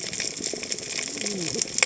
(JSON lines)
{"label": "biophony, cascading saw", "recorder": "HydroMoth"}